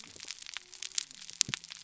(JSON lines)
{"label": "biophony", "recorder": "SoundTrap 300"}